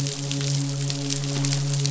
{"label": "biophony, midshipman", "recorder": "SoundTrap 500"}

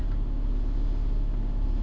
{"label": "anthrophony, boat engine", "recorder": "SoundTrap 300"}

